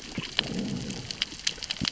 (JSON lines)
{"label": "biophony, growl", "recorder": "SoundTrap 600 or HydroMoth"}